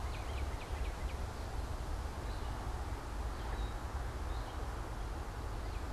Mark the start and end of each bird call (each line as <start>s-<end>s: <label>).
0.0s-1.7s: Northern Cardinal (Cardinalis cardinalis)
2.1s-5.9s: Gray Catbird (Dumetella carolinensis)
5.4s-5.9s: Northern Cardinal (Cardinalis cardinalis)